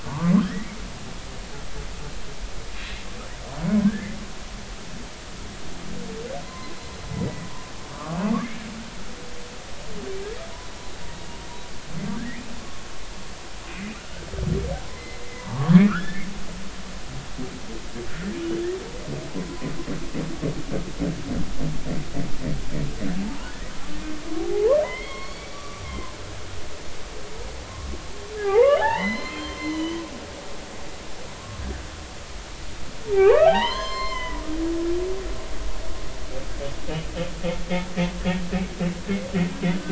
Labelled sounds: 0.0	0.8	humpback whale, 0.86 to 2.3 kHz
3.8	4.2	humpback whale, 1.5 to 2.1 kHz
6.4	6.8	humpback whale, 0.93 to 1.1 kHz
8.4	8.7	humpback whale, 1.6 to 1.8 kHz
12.6	12.8	humpback whale, 1.0 to 1.3 kHz
14.9	16.2	humpback whale, 0.86 to 4.2 kHz
19.4	19.7	humpback whale, 0.96 to 1.1 kHz
23.2	23.5	humpback whale, 0.80 to 1.1 kHz
24.4	26.4	humpback whale, 0.80 to 4.6 kHz
28.4	30.0	humpback whale, 0.80 to 4.3 kHz
33.1	34.5	humpback whale, 0.80 to 7.4 kHz

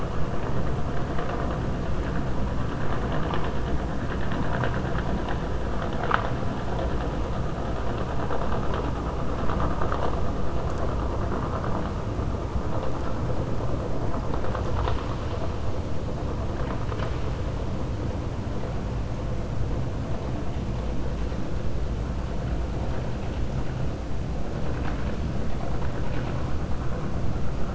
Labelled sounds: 16.5	17.3	vessel noise, 0.92 to 5.4 kHz

